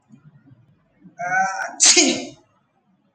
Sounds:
Sneeze